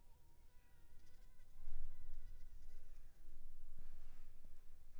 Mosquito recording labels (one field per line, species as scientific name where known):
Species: Anopheles funestus s.s.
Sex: female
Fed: unfed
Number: one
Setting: cup